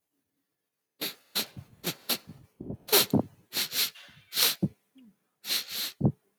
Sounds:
Sniff